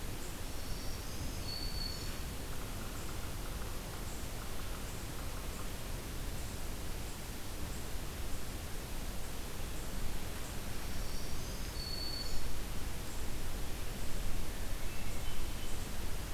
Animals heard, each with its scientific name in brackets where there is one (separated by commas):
Hermit Thrush (Catharus guttatus), Yellow-bellied Sapsucker (Sphyrapicus varius), Black-throated Green Warbler (Setophaga virens)